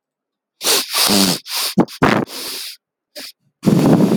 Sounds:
Sniff